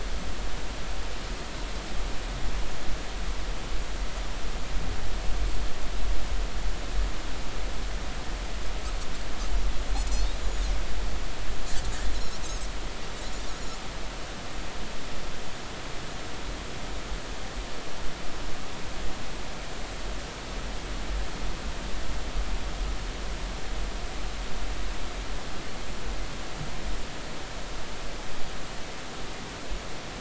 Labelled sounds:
10.4	10.7	Pacific white-sided dolphin, 6.5 to 7.2 kHz
12.4	12.7	Pacific white-sided dolphin, 6.1 to 6.7 kHz

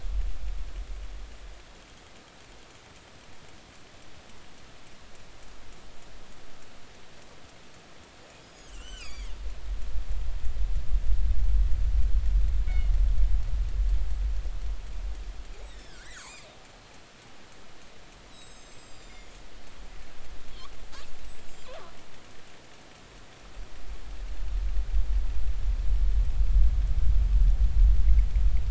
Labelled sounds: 8.4	9.3	killer whale, northern resident, G clan, 1.1 to 8.0 kHz
12.7	13.0	killer whale, northern resident, G clan, call N24ii, 2.1 to 2.3 kHz
15.6	16.5	killer whale, northern resident, G clan, 1.3 to 5.6 kHz
18.3	19.3	killer whale, northern resident, G clan, 3.5 to 8.0 kHz
21.0	21.7	killer whale, northern resident, G clan, call N25, 7.2 to 8.0 kHz

